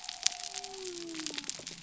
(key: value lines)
label: biophony
recorder: SoundTrap 300